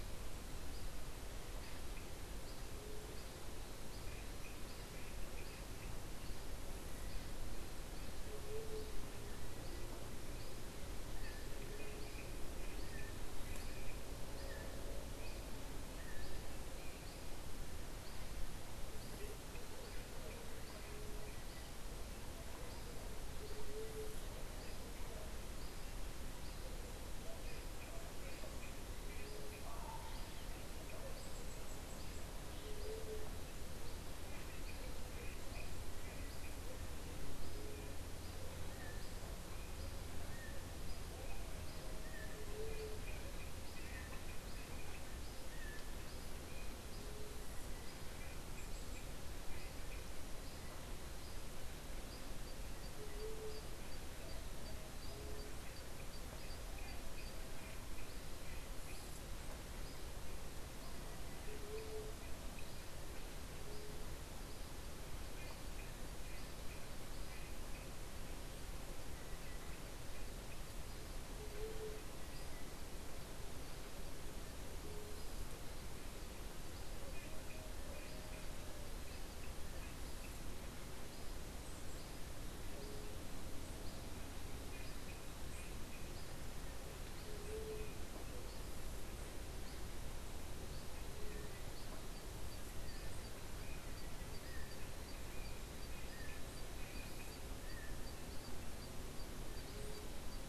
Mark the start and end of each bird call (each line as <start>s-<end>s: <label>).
8.2s-8.9s: White-tipped Dove (Leptotila verreauxi)
23.4s-24.1s: White-tipped Dove (Leptotila verreauxi)
32.5s-33.2s: White-tipped Dove (Leptotila verreauxi)
38.5s-46.0s: Yellow-backed Oriole (Icterus chrysater)
42.3s-43.0s: White-tipped Dove (Leptotila verreauxi)
52.9s-53.6s: White-tipped Dove (Leptotila verreauxi)
61.4s-62.1s: White-tipped Dove (Leptotila verreauxi)
71.3s-72.0s: White-tipped Dove (Leptotila verreauxi)
87.2s-87.9s: White-tipped Dove (Leptotila verreauxi)
91.0s-91.7s: White-tipped Dove (Leptotila verreauxi)
99.5s-100.2s: White-tipped Dove (Leptotila verreauxi)